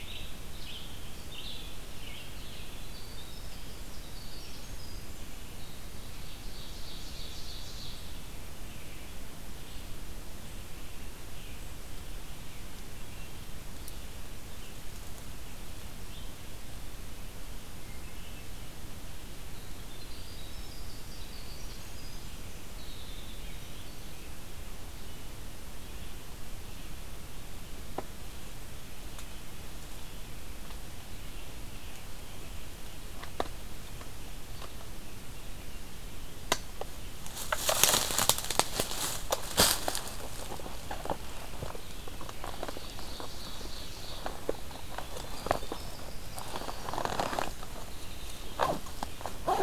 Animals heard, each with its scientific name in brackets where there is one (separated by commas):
Red-eyed Vireo (Vireo olivaceus), Winter Wren (Troglodytes hiemalis), Ovenbird (Seiurus aurocapilla)